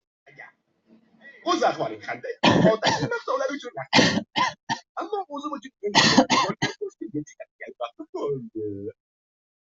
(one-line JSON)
{"expert_labels": [{"quality": "poor", "cough_type": "dry", "dyspnea": false, "wheezing": false, "stridor": false, "choking": false, "congestion": false, "nothing": true, "diagnosis": "healthy cough", "severity": "pseudocough/healthy cough"}, {"quality": "poor", "cough_type": "unknown", "dyspnea": false, "wheezing": false, "stridor": false, "choking": false, "congestion": false, "nothing": true, "diagnosis": "healthy cough", "severity": "unknown"}, {"quality": "ok", "cough_type": "dry", "dyspnea": false, "wheezing": false, "stridor": false, "choking": false, "congestion": false, "nothing": true, "diagnosis": "upper respiratory tract infection", "severity": "mild"}, {"quality": "ok", "cough_type": "dry", "dyspnea": false, "wheezing": false, "stridor": false, "choking": false, "congestion": false, "nothing": true, "diagnosis": "upper respiratory tract infection", "severity": "mild"}]}